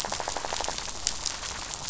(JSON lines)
{"label": "biophony, rattle", "recorder": "SoundTrap 500"}